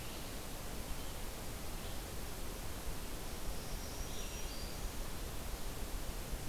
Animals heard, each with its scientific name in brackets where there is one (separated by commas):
Black-throated Green Warbler (Setophaga virens), Red-eyed Vireo (Vireo olivaceus)